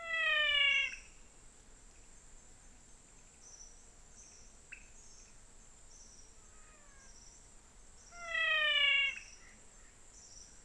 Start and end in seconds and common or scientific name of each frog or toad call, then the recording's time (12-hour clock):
0.0	1.2	menwig frog
4.7	5.0	pointedbelly frog
8.0	9.4	menwig frog
5:45pm